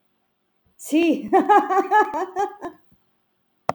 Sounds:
Laughter